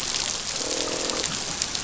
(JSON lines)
{"label": "biophony, croak", "recorder": "SoundTrap 500"}